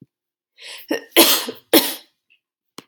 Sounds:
Cough